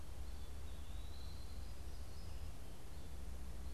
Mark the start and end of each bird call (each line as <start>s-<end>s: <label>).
0.0s-3.7s: American Goldfinch (Spinus tristis)
0.0s-3.7s: Eastern Wood-Pewee (Contopus virens)